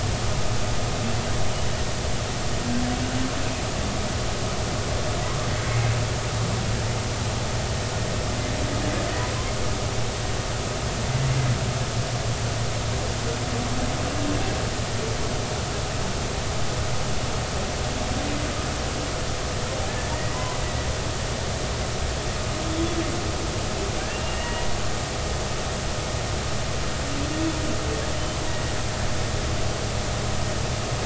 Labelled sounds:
20.3	20.6	humpback whale, 0.93 to 1.2 kHz
24.1	24.6	humpback whale, 1.8 to 2.9 kHz

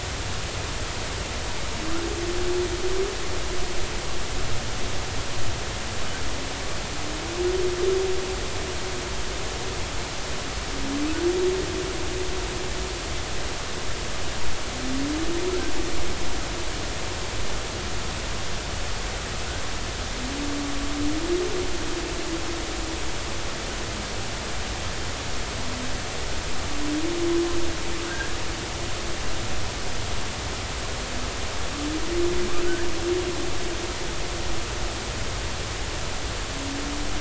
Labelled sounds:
28.1	28.3	humpback whale, 1.5 to 1.8 kHz
32.6	32.9	humpback whale, 1.4 to 1.8 kHz

